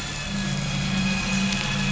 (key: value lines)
label: anthrophony, boat engine
recorder: SoundTrap 500